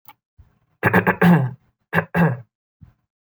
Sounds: Throat clearing